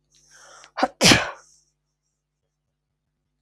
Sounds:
Sneeze